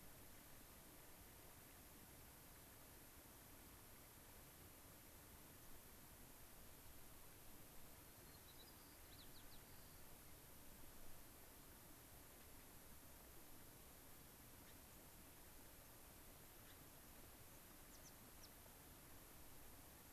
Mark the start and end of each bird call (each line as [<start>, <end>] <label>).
[7.95, 10.05] White-crowned Sparrow (Zonotrichia leucophrys)
[12.35, 12.45] Gray-crowned Rosy-Finch (Leucosticte tephrocotis)
[14.65, 14.75] Gray-crowned Rosy-Finch (Leucosticte tephrocotis)
[16.65, 16.75] Gray-crowned Rosy-Finch (Leucosticte tephrocotis)
[17.85, 18.45] White-crowned Sparrow (Zonotrichia leucophrys)